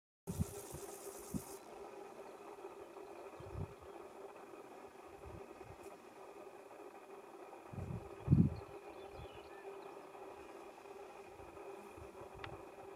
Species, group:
Chorthippus bornhalmi
Orthoptera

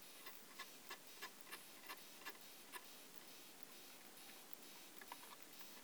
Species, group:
Isophya kraussii
Orthoptera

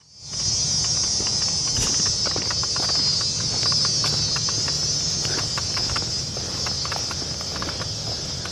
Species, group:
Thopha saccata
Cicadidae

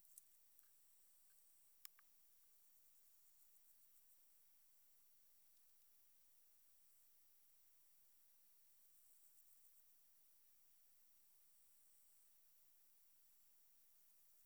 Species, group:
Leptophyes punctatissima
Orthoptera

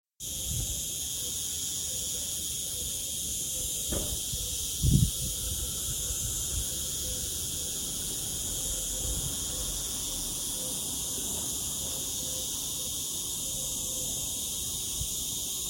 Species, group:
Cicada barbara
Cicadidae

